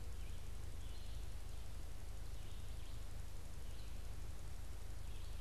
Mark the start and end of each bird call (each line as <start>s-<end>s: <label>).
0.0s-5.4s: Red-eyed Vireo (Vireo olivaceus)